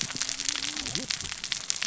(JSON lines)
{"label": "biophony, cascading saw", "recorder": "SoundTrap 600 or HydroMoth"}